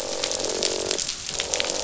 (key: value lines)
label: biophony, croak
recorder: SoundTrap 500